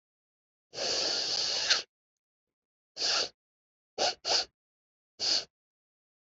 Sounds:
Sniff